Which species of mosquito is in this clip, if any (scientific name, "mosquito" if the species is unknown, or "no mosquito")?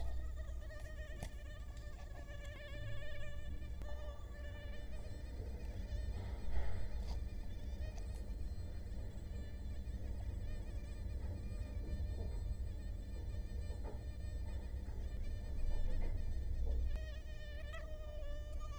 Culex quinquefasciatus